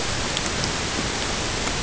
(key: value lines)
label: ambient
recorder: HydroMoth